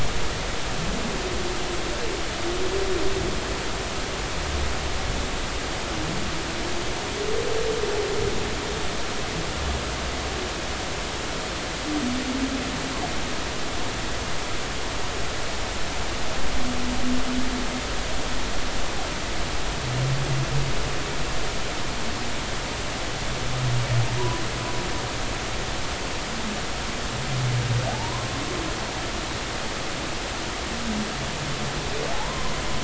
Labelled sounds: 24.2	24.4	humpback whale, 0.90 to 1.0 kHz
27.9	28.3	humpback whale, 0.80 to 1.1 kHz
32.1	32.5	humpback whale, 0.80 to 1.1 kHz

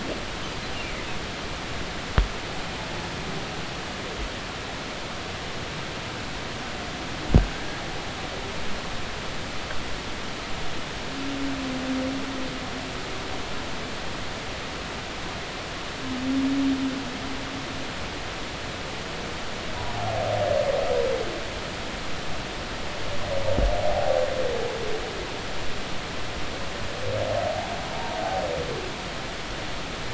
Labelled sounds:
23.8	24.1	humpback whale, 0.80 to 0.86 kHz
27.9	28.2	humpback whale, 0.86 to 0.99 kHz

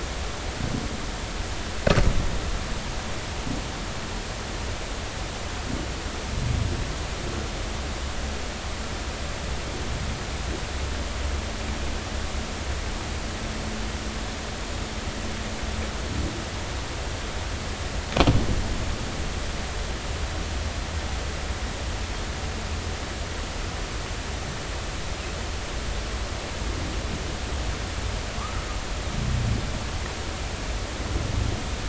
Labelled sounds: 28.4	28.7	humpback whale, 1.1 to 1.4 kHz

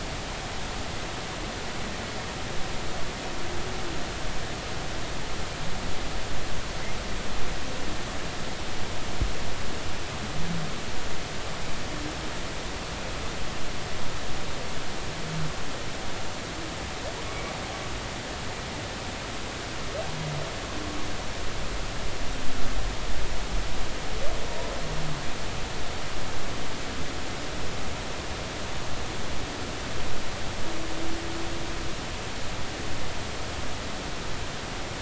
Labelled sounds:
17.3	17.5	humpback whale, 2.1 to 2.3 kHz

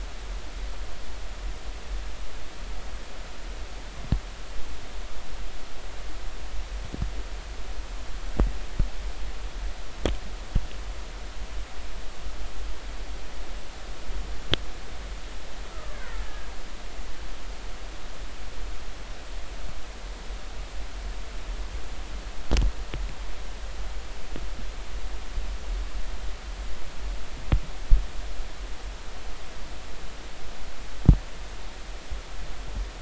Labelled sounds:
15.7	16.2	killer whale, Bigg's (transient), 1.1 to 2.3 kHz

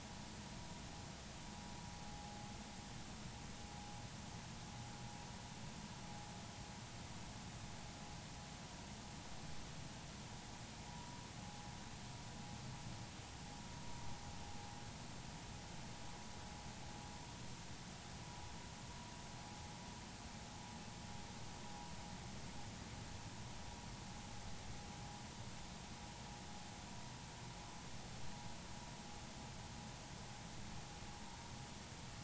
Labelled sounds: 10.9	11.2	vessel noise, 0.80 to 1.0 kHz

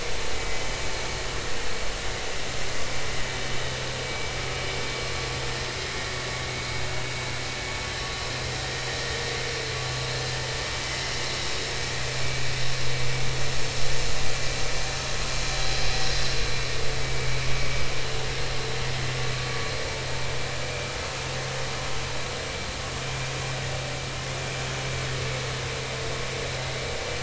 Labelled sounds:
4.1	4.3	vessel noise, 2.2 to 2.4 kHz
17.0	17.3	vessel noise, 2.2 to 2.3 kHz

